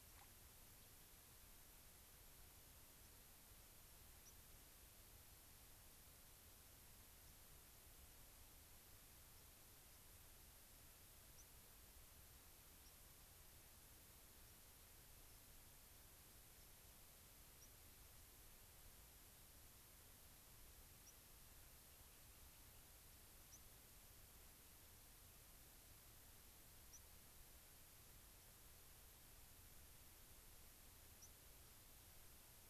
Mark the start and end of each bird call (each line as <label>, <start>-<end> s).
White-crowned Sparrow (Zonotrichia leucophrys), 4.2-4.4 s
White-crowned Sparrow (Zonotrichia leucophrys), 9.3-9.5 s
White-crowned Sparrow (Zonotrichia leucophrys), 9.9-10.0 s
White-crowned Sparrow (Zonotrichia leucophrys), 11.3-11.5 s
White-crowned Sparrow (Zonotrichia leucophrys), 12.8-13.0 s
White-crowned Sparrow (Zonotrichia leucophrys), 15.2-15.4 s
White-crowned Sparrow (Zonotrichia leucophrys), 16.6-16.8 s
White-crowned Sparrow (Zonotrichia leucophrys), 17.6-17.7 s
White-crowned Sparrow (Zonotrichia leucophrys), 21.0-21.2 s
White-crowned Sparrow (Zonotrichia leucophrys), 23.5-23.6 s
White-crowned Sparrow (Zonotrichia leucophrys), 26.9-27.1 s
White-crowned Sparrow (Zonotrichia leucophrys), 31.2-31.3 s